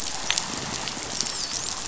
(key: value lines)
label: biophony, dolphin
recorder: SoundTrap 500